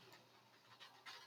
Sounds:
Throat clearing